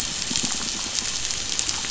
{"label": "anthrophony, boat engine", "recorder": "SoundTrap 500"}
{"label": "biophony, pulse", "recorder": "SoundTrap 500"}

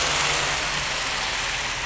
{"label": "anthrophony, boat engine", "recorder": "SoundTrap 500"}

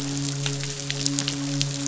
{"label": "biophony, midshipman", "recorder": "SoundTrap 500"}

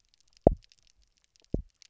{"label": "biophony, double pulse", "recorder": "SoundTrap 300"}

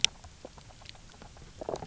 {"label": "biophony, low growl", "recorder": "SoundTrap 300"}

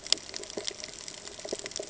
{"label": "ambient", "recorder": "HydroMoth"}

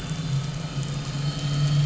{"label": "anthrophony, boat engine", "recorder": "SoundTrap 500"}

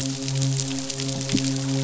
{"label": "biophony, midshipman", "recorder": "SoundTrap 500"}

